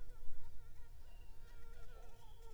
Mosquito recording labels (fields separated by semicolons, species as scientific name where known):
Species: Anopheles gambiae s.l.; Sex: female; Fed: unfed; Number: one; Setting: cup